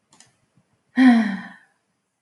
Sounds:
Sigh